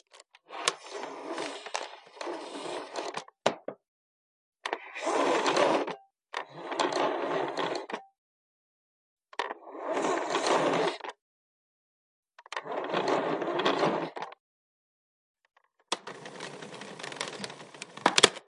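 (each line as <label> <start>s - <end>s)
The cable of a vacuum cleaner is being pulled out. 0.4s - 4.0s
The cable of a vacuum cleaner is being pulled out. 4.6s - 8.1s
The cable of a vacuum cleaner is being pulled out. 9.4s - 11.2s
Someone is pulling out a vacuum cleaner cable. 12.5s - 14.4s
A recorder crackles. 15.9s - 18.0s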